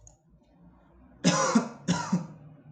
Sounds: Cough